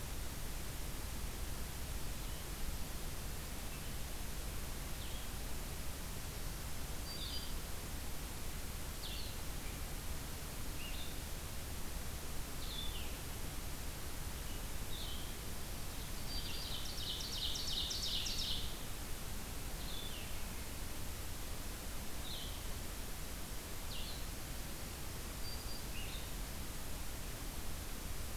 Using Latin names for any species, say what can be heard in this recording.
Vireo solitarius, Setophaga virens, Seiurus aurocapilla